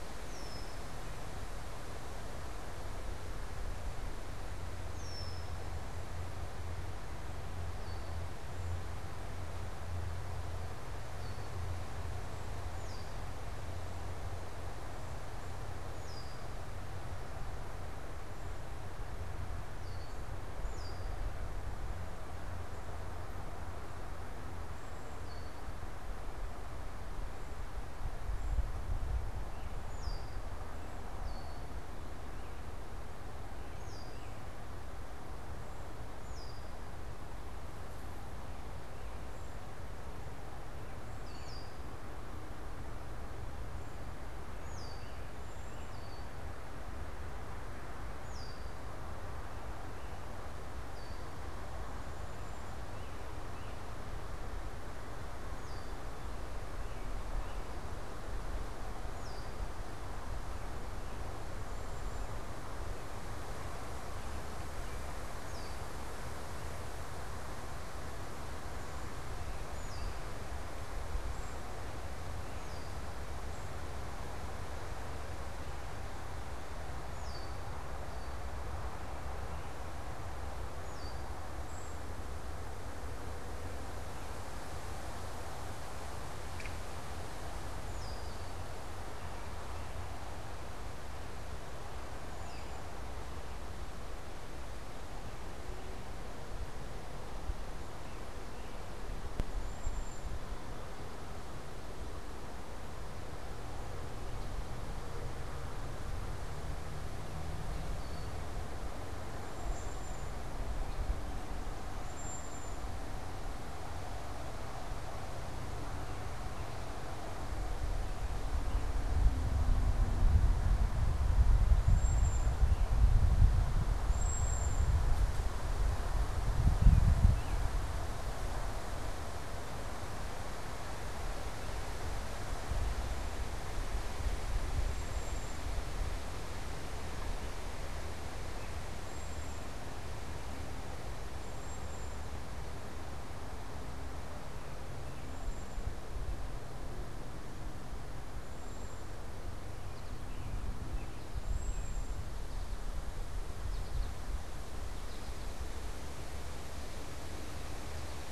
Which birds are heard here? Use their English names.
Red-winged Blackbird, unidentified bird, Cedar Waxwing, American Goldfinch, American Robin